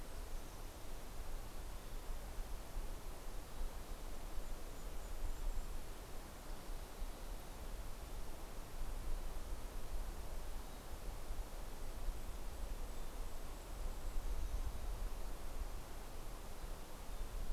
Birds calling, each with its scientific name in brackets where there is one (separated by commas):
Golden-crowned Kinglet (Regulus satrapa), Mountain Chickadee (Poecile gambeli)